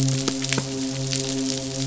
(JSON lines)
{"label": "biophony, midshipman", "recorder": "SoundTrap 500"}